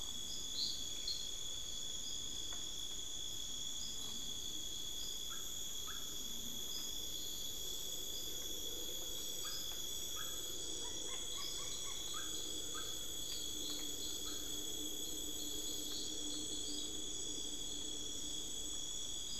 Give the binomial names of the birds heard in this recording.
Glaucidium brasilianum